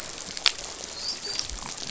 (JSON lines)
{"label": "biophony, dolphin", "recorder": "SoundTrap 500"}